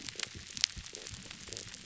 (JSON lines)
{"label": "biophony", "recorder": "SoundTrap 300"}